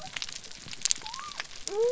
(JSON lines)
{"label": "biophony", "recorder": "SoundTrap 300"}